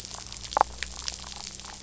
{"label": "biophony, damselfish", "recorder": "SoundTrap 500"}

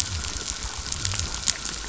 {"label": "biophony", "recorder": "SoundTrap 500"}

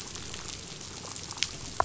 {"label": "biophony, damselfish", "recorder": "SoundTrap 500"}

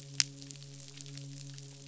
{"label": "biophony, midshipman", "recorder": "SoundTrap 500"}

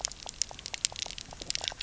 {"label": "biophony, pulse", "recorder": "SoundTrap 300"}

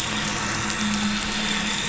{"label": "anthrophony, boat engine", "recorder": "SoundTrap 500"}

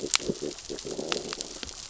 {"label": "biophony, growl", "recorder": "SoundTrap 600 or HydroMoth"}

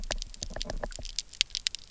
{"label": "biophony, knock", "recorder": "SoundTrap 300"}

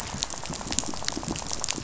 {"label": "biophony, rattle", "recorder": "SoundTrap 500"}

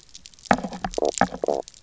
{"label": "biophony, knock croak", "recorder": "SoundTrap 300"}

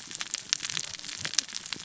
{"label": "biophony, cascading saw", "recorder": "SoundTrap 600 or HydroMoth"}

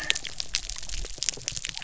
{"label": "biophony", "recorder": "SoundTrap 300"}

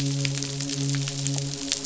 {"label": "biophony, midshipman", "recorder": "SoundTrap 500"}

